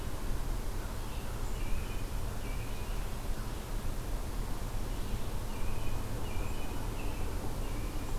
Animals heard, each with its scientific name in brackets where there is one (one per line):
American Robin (Turdus migratorius)
Red-eyed Vireo (Vireo olivaceus)